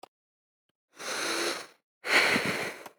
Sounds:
Sigh